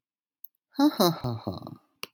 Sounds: Laughter